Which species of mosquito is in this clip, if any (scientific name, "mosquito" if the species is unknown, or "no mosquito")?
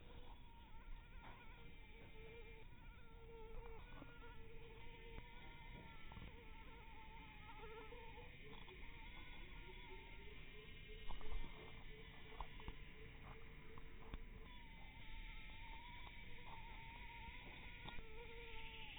mosquito